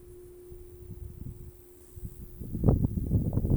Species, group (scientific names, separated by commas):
Pteronemobius heydenii, Orthoptera